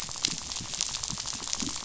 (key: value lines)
label: biophony, rattle
recorder: SoundTrap 500